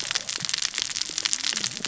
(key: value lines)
label: biophony, cascading saw
recorder: SoundTrap 600 or HydroMoth